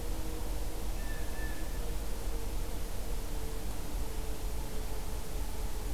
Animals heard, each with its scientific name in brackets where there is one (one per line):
Blue Jay (Cyanocitta cristata)